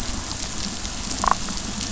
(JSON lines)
{"label": "biophony, damselfish", "recorder": "SoundTrap 500"}
{"label": "biophony", "recorder": "SoundTrap 500"}